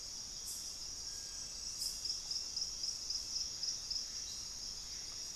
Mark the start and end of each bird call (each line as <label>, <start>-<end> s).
Gray Antbird (Cercomacra cinerascens), 3.3-5.3 s